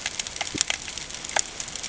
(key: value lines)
label: ambient
recorder: HydroMoth